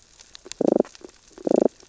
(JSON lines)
{"label": "biophony, damselfish", "recorder": "SoundTrap 600 or HydroMoth"}